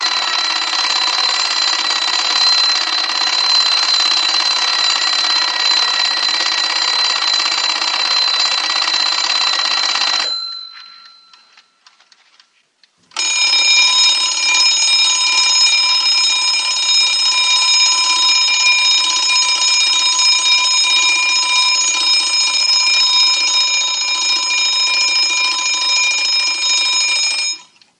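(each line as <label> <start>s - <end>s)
A mechanical alarm clock rings loudly in a steady pattern. 0.0s - 10.3s
A mechanical alarm clock rings loudly and then fades out. 10.3s - 11.9s
An old mechanical alarm clock ticking quietly in an inconsistent pattern. 10.6s - 13.1s
A mechanical alarm clock rings loudly in a steady pattern. 13.1s - 27.6s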